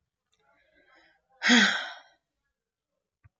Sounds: Sigh